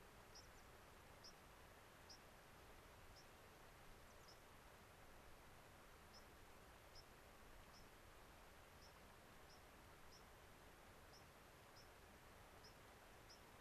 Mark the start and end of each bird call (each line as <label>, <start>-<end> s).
White-crowned Sparrow (Zonotrichia leucophrys), 0.2-0.5 s
American Pipit (Anthus rubescens), 0.4-0.7 s
White-crowned Sparrow (Zonotrichia leucophrys), 1.1-1.4 s
White-crowned Sparrow (Zonotrichia leucophrys), 2.0-4.5 s
White-crowned Sparrow (Zonotrichia leucophrys), 6.1-13.6 s